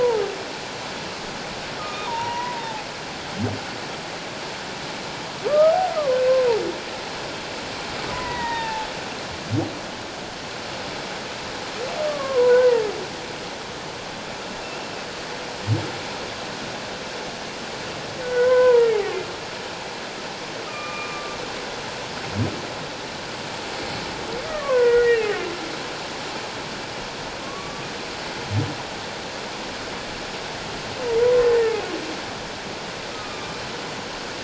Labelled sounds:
1.8	2.9	humpback whale, 0.78 to 2.0 kHz
5.5	5.8	humpback whale, 1.1 to 1.3 kHz
6.1	6.4	humpback whale, 1.5 to 1.6 kHz
8.1	8.9	humpback whale, 0.78 to 2.1 kHz
12.0	12.9	humpback whale, 0.88 to 2.0 kHz
18.2	19.3	humpback whale, 0.88 to 2.7 kHz
20.7	21.4	humpback whale, 1.1 to 2.5 kHz
24.5	25.3	humpback whale, 0.94 to 2.9 kHz
27.4	27.9	humpback whale, 1.0 to 1.2 kHz
31.2	31.8	humpback whale, 0.94 to 1.9 kHz
33.1	33.5	humpback whale, 1.2 to 1.3 kHz

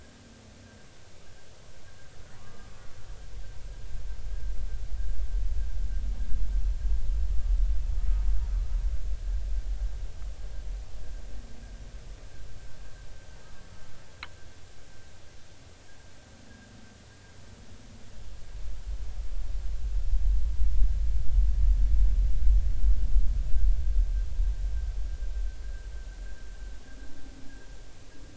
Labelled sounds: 2.3	2.7	humpback whale, 0.96 to 1.3 kHz

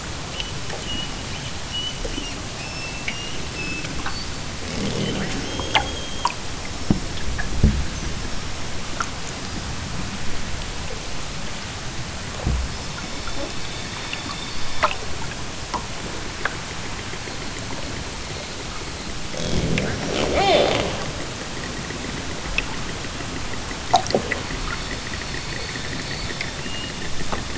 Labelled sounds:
12.6	13.3	killer whale, southern Alaska resident, 2.9 to 5.7 kHz
20.0	20.8	killer whale, southern Alaska resident, 0.28 to 6.3 kHz
24.7	25.3	killer whale, southern Alaska resident, 3.0 to 5.3 kHz

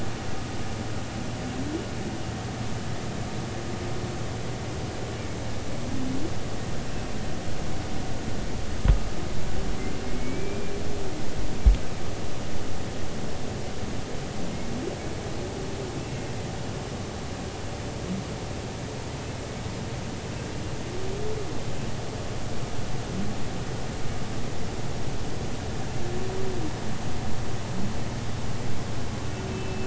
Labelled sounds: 10.1	10.7	humpback whale, 2.1 to 2.4 kHz
29.5	29.8	humpback whale, 2.6 to 2.7 kHz

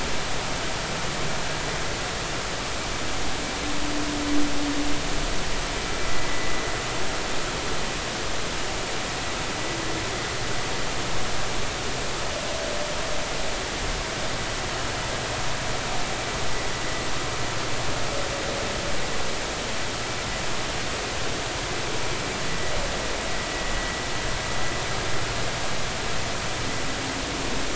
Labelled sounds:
6.3	6.5	vessel noise, 1.9 to 2.0 kHz

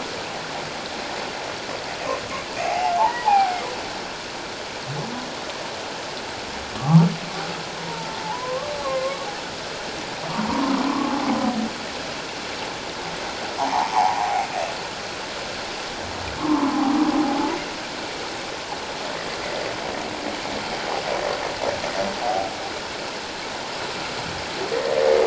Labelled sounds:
2.6	3.5	humpback whale, 0.78 to 1.1 kHz
6.8	7.1	humpback whale, 0.78 to 1.4 kHz
7.9	9.3	humpback whale, 0.81 to 1.2 kHz
10.5	11.3	humpback whale, 0.78 to 1.2 kHz
13.6	14.5	humpback whale, 0.78 to 1.2 kHz
16.4	16.7	humpback whale, 0.84 to 1.3 kHz

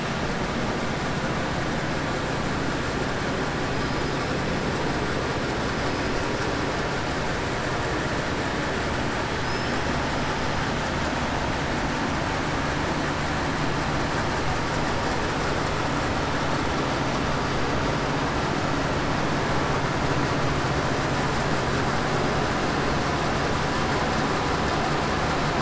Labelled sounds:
9.4	9.8	killer whale, 5.0 to 5.5 kHz

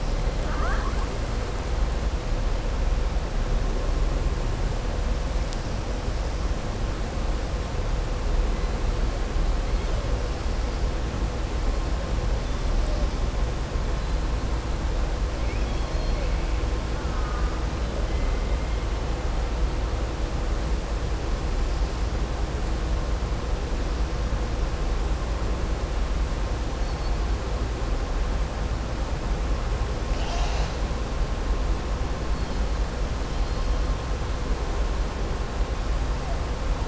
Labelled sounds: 15.4	16.3	killer whale, southern resident, 2.1 to 4.3 kHz

